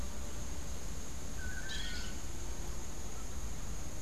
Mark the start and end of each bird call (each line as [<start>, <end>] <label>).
[1.23, 2.23] Long-tailed Manakin (Chiroxiphia linearis)
[1.43, 2.33] Crimson-fronted Parakeet (Psittacara finschi)